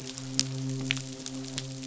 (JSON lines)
{"label": "biophony, midshipman", "recorder": "SoundTrap 500"}